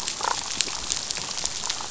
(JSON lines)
{"label": "biophony, damselfish", "recorder": "SoundTrap 500"}